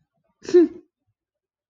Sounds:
Sneeze